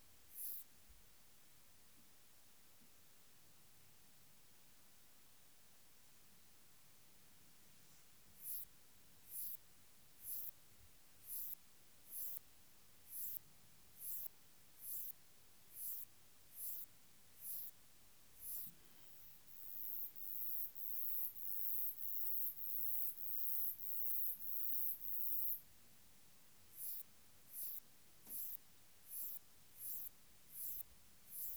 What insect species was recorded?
Antaxius kraussii